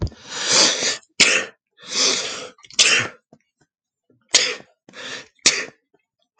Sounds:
Sneeze